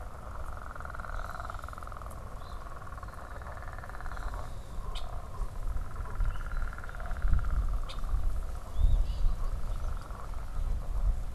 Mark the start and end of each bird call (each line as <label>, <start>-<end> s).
unidentified bird, 4.8-5.1 s
unidentified bird, 7.8-8.1 s
Eastern Phoebe (Sayornis phoebe), 8.7-9.3 s